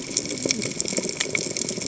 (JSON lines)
{"label": "biophony, cascading saw", "recorder": "HydroMoth"}